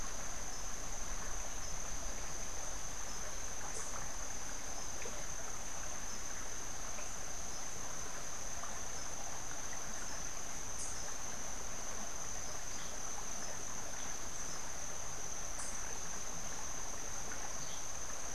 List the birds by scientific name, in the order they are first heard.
Cantorchilus modestus